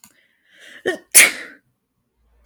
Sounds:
Sneeze